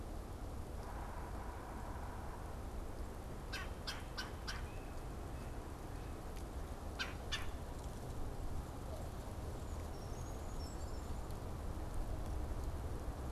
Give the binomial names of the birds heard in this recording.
Melanerpes carolinus, Certhia americana